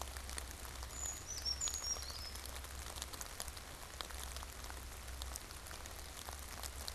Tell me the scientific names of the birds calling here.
Certhia americana